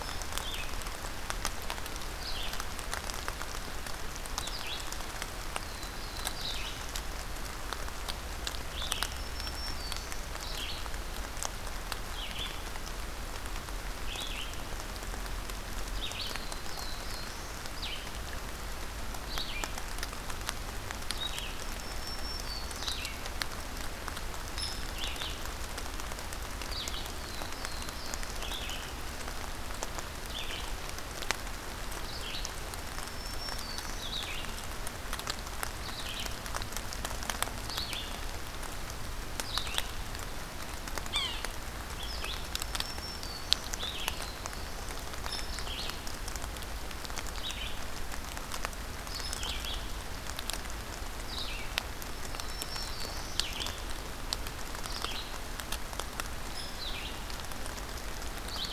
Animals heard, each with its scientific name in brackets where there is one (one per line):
Black-throated Green Warbler (Setophaga virens)
Yellow-bellied Sapsucker (Sphyrapicus varius)
Red-eyed Vireo (Vireo olivaceus)
Black-throated Blue Warbler (Setophaga caerulescens)